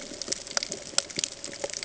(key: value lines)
label: ambient
recorder: HydroMoth